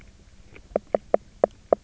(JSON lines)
{"label": "biophony, knock croak", "recorder": "SoundTrap 300"}